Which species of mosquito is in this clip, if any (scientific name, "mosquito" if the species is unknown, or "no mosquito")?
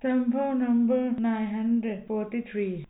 no mosquito